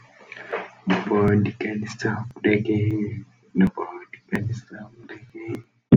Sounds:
Sigh